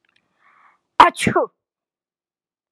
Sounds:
Sneeze